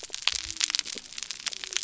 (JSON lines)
{"label": "biophony", "recorder": "SoundTrap 300"}